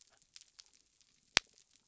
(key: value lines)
label: biophony
recorder: SoundTrap 300